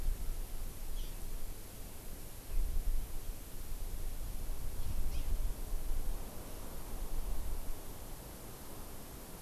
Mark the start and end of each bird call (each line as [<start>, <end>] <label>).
[5.11, 5.21] Hawaii Amakihi (Chlorodrepanis virens)